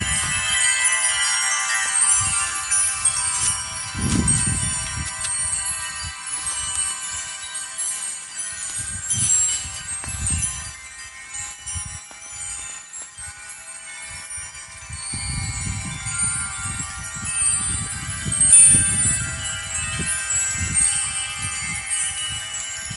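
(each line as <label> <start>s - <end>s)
Chaotic metallic sounds from wind chimes with wind noise in the background. 0.0s - 23.0s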